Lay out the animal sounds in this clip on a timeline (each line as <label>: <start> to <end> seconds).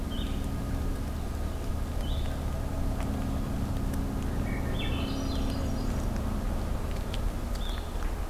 Blue-headed Vireo (Vireo solitarius): 0.0 to 7.9 seconds
Swainson's Thrush (Catharus ustulatus): 4.2 to 6.1 seconds